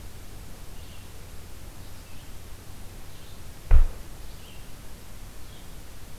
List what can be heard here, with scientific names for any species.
Vireo olivaceus